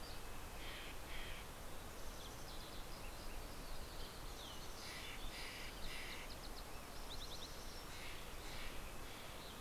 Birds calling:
Steller's Jay (Cyanocitta stelleri), Yellow-rumped Warbler (Setophaga coronata), Green-tailed Towhee (Pipilo chlorurus), Mountain Chickadee (Poecile gambeli)

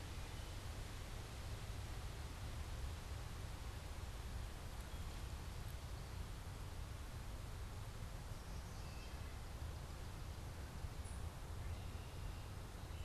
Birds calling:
Wood Thrush (Hylocichla mustelina)

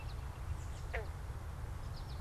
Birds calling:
American Goldfinch (Spinus tristis), American Robin (Turdus migratorius)

